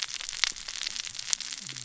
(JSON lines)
{"label": "biophony, cascading saw", "recorder": "SoundTrap 600 or HydroMoth"}